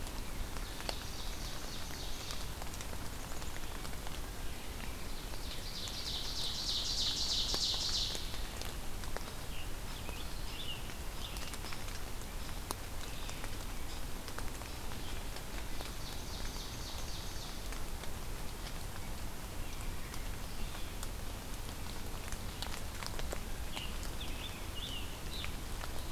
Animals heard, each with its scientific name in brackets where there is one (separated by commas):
Eastern Chipmunk (Tamias striatus), Red-eyed Vireo (Vireo olivaceus), Ovenbird (Seiurus aurocapilla), Scarlet Tanager (Piranga olivacea)